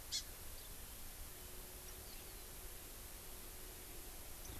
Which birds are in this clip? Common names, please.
Hawaii Amakihi